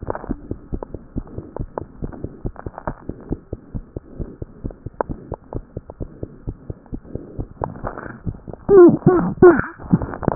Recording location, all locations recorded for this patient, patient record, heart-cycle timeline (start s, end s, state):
tricuspid valve (TV)
aortic valve (AV)+pulmonary valve (PV)+tricuspid valve (TV)+mitral valve (MV)
#Age: Infant
#Sex: Female
#Height: 69.0 cm
#Weight: 7.69 kg
#Pregnancy status: False
#Murmur: Unknown
#Murmur locations: nan
#Most audible location: nan
#Systolic murmur timing: nan
#Systolic murmur shape: nan
#Systolic murmur grading: nan
#Systolic murmur pitch: nan
#Systolic murmur quality: nan
#Diastolic murmur timing: nan
#Diastolic murmur shape: nan
#Diastolic murmur grading: nan
#Diastolic murmur pitch: nan
#Diastolic murmur quality: nan
#Outcome: Abnormal
#Campaign: 2015 screening campaign
0.00	0.96	unannotated
0.96	1.14	diastole
1.14	1.22	S1
1.22	1.36	systole
1.36	1.44	S2
1.44	1.55	diastole
1.55	1.67	S1
1.67	1.79	systole
1.79	1.89	S2
1.89	2.00	diastole
2.00	2.08	S1
2.08	2.21	systole
2.21	2.28	S2
2.28	2.43	diastole
2.43	2.51	S1
2.51	2.62	systole
2.62	2.71	S2
2.71	2.84	diastole
2.84	2.94	S1
2.94	3.07	systole
3.07	3.14	S2
3.14	3.29	diastole
3.29	3.36	S1
3.36	3.51	systole
3.51	3.57	S2
3.57	3.73	diastole
3.73	3.82	S1
3.82	3.94	systole
3.94	4.00	S2
4.00	4.17	diastole
4.17	4.27	S1
4.27	10.35	unannotated